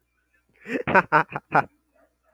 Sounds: Laughter